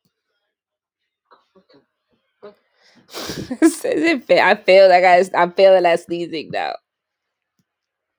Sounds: Sneeze